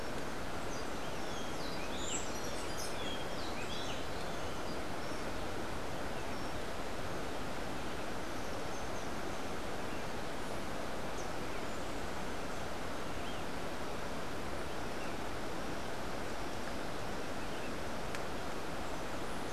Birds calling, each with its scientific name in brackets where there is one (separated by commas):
Rufous-breasted Wren (Pheugopedius rutilus)